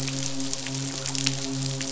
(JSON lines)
{"label": "biophony, midshipman", "recorder": "SoundTrap 500"}